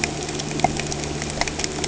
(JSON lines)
{"label": "anthrophony, boat engine", "recorder": "HydroMoth"}